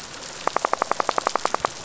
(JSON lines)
{"label": "biophony, rattle", "recorder": "SoundTrap 500"}